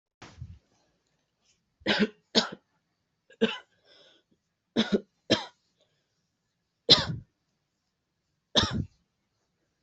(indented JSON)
{
  "expert_labels": [
    {
      "quality": "good",
      "cough_type": "dry",
      "dyspnea": false,
      "wheezing": false,
      "stridor": false,
      "choking": false,
      "congestion": false,
      "nothing": true,
      "diagnosis": "upper respiratory tract infection",
      "severity": "mild"
    }
  ],
  "age": 30,
  "gender": "female",
  "respiratory_condition": false,
  "fever_muscle_pain": true,
  "status": "COVID-19"
}